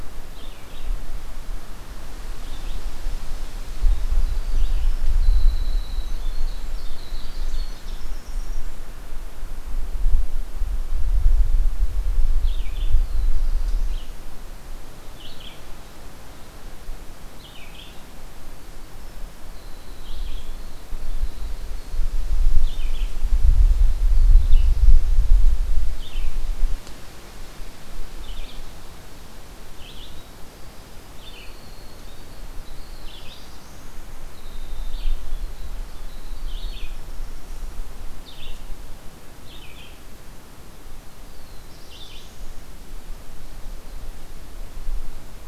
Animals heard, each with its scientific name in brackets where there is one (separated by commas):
Black-throated Blue Warbler (Setophaga caerulescens), Winter Wren (Troglodytes hiemalis), Red-eyed Vireo (Vireo olivaceus)